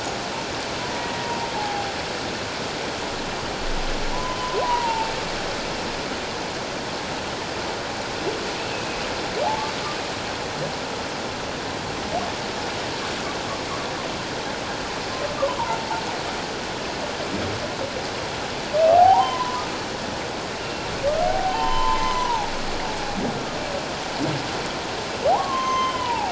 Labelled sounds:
1.0	1.9	humpback whale, 0.78 to 1.9 kHz
4.1	5.1	humpback whale, 0.84 to 1.1 kHz
8.7	9.7	humpback whale, 0.78 to 2.6 kHz
18.9	19.6	humpback whale, 0.78 to 1.1 kHz
21.2	22.5	humpback whale, 0.78 to 6.2 kHz
25.3	26.3	humpback whale, 0.78 to 6.4 kHz

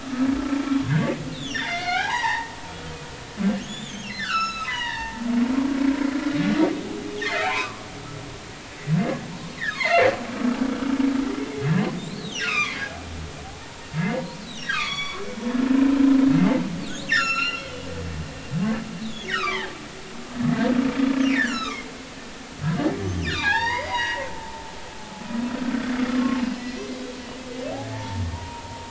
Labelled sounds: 1.3	2.5	humpback whale, 0.80 to 6.4 kHz
3.6	5.8	humpback whale, 0.83 to 7.3 kHz
7.4	7.9	humpback whale, 0.80 to 2.6 kHz
9.6	10.0	humpback whale, 0.86 to 4.4 kHz
12.0	13.0	humpback whale, 0.80 to 4.6 kHz
13.6	14.3	humpback whale, 0.86 to 2.1 kHz
14.6	15.2	humpback whale, 0.99 to 6.8 kHz
16.3	16.6	humpback whale, 2.0 to 2.1 kHz
17.1	17.9	humpback whale, 1.2 to 7.3 kHz
19.0	19.7	humpback whale, 0.80 to 4.0 kHz
21.2	21.9	humpback whale, 0.93 to 7.4 kHz
23.3	24.3	humpback whale, 0.80 to 5.1 kHz
25.6	26.8	humpback whale, 1.0 to 4.2 kHz
27.9	28.8	humpback whale, 0.83 to 0.99 kHz

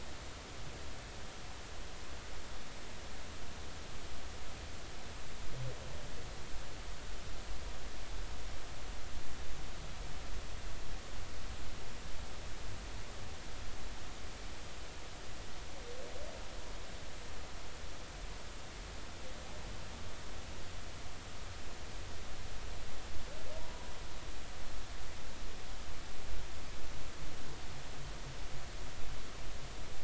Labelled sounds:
23.6	23.9	humpback whale, 0.90 to 1.0 kHz

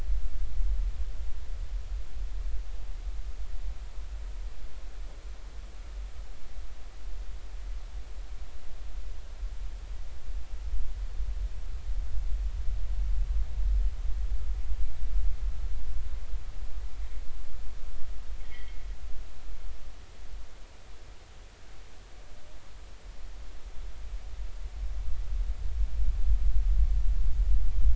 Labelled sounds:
18.4	18.8	vessel noise, 1.8 to 3.4 kHz

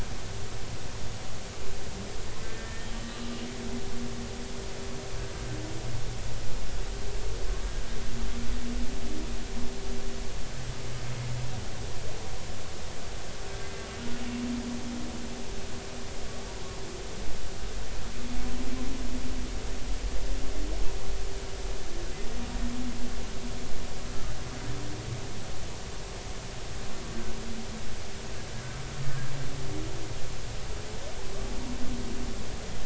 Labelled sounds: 2.4	3.3	humpback whale, 1.2 to 3.1 kHz

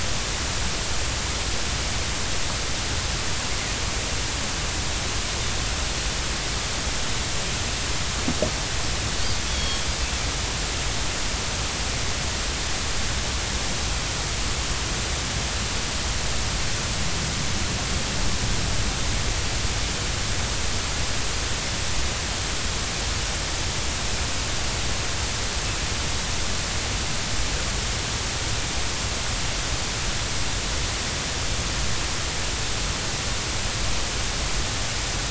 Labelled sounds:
9.5	9.8	Pacific white-sided dolphin, 3.2 to 4.5 kHz

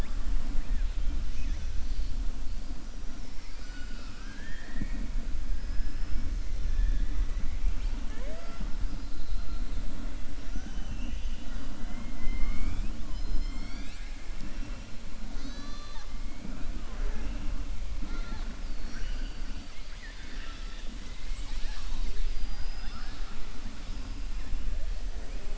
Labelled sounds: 3.0	5.0	killer whale, southern resident, 0.21 to 5.9 kHz
5.6	6.2	killer whale, southern resident, 5.1 to 5.5 kHz
6.6	8.0	killer whale, southern resident, 1.1 to 5.3 kHz
10.4	11.6	killer whale, southern resident, 0.74 to 3.9 kHz
19.9	20.9	killer whale, southern resident, 1.3 to 5.4 kHz

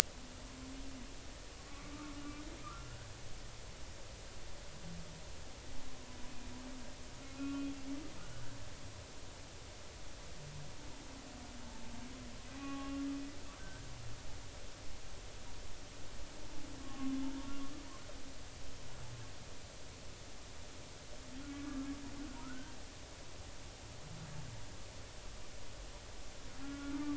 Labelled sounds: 1.7	1.9	humpback whale, 1.1 to 1.2 kHz
2.6	3.0	humpback whale, 1.1 to 1.5 kHz
7.3	7.7	humpback whale, 1.3 to 2.6 kHz
12.5	13.0	humpback whale, 0.80 to 1.2 kHz
13.6	13.9	humpback whale, 1.5 to 1.7 kHz
16.8	17.5	humpback whale, 0.86 to 1.2 kHz
21.5	21.8	humpback whale, 1.1 to 1.2 kHz
22.4	22.8	humpback whale, 1.2 to 1.6 kHz
26.6	27.1	humpback whale, 1.1 to 1.5 kHz

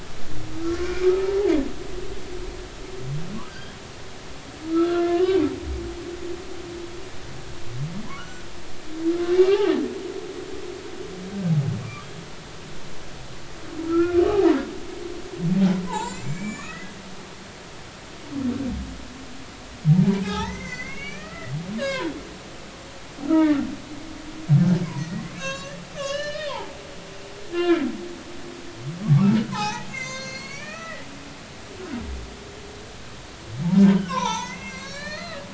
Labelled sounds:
0.6	1.5	humpback whale, 0.80 to 2.5 kHz
3.5	3.8	humpback whale, 1.4 to 5.0 kHz
4.7	5.4	humpback whale, 0.99 to 1.9 kHz
8.2	8.5	humpback whale, 1.3 to 6.0 kHz
9.3	9.7	humpback whale, 0.80 to 2.9 kHz
11.8	12.1	humpback whale, 1.1 to 1.3 kHz
13.9	14.2	humpback whale, 1.2 to 2.5 kHz
15.9	16.9	humpback whale, 0.80 to 7.6 kHz
20.2	22.2	humpback whale, 0.80 to 6.3 kHz
23.2	23.6	humpback whale, 1.1 to 2.0 kHz
25.0	26.7	humpback whale, 0.80 to 8.0 kHz
27.5	27.8	humpback whale, 1.2 to 3.6 kHz
29.5	31.1	humpback whale, 0.80 to 7.5 kHz
34.1	35.4	humpback whale, 0.83 to 6.5 kHz

